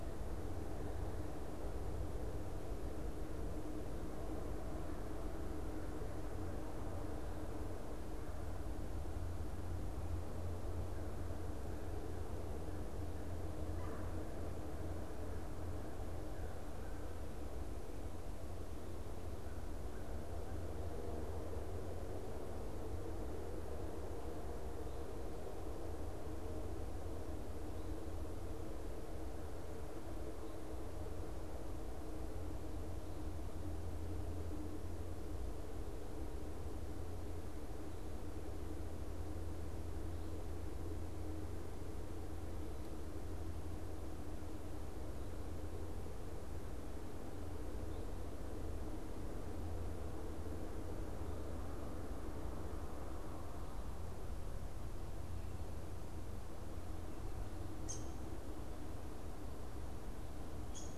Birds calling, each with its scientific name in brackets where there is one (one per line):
Red-bellied Woodpecker (Melanerpes carolinus)
Downy Woodpecker (Dryobates pubescens)